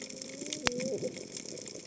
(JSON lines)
{"label": "biophony, cascading saw", "recorder": "HydroMoth"}